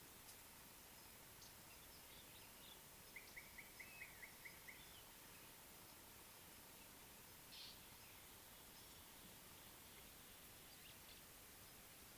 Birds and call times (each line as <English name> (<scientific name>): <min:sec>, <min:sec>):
Slate-colored Boubou (Laniarius funebris): 0:03.8, 0:07.7